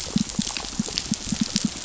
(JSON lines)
{"label": "biophony, pulse", "recorder": "SoundTrap 500"}